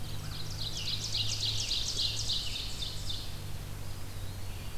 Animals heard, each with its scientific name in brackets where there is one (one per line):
Scarlet Tanager (Piranga olivacea)
Ovenbird (Seiurus aurocapilla)
American Crow (Corvus brachyrhynchos)
Red-eyed Vireo (Vireo olivaceus)
Eastern Wood-Pewee (Contopus virens)